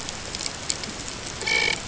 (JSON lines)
{"label": "ambient", "recorder": "HydroMoth"}